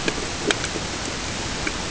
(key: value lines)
label: ambient
recorder: HydroMoth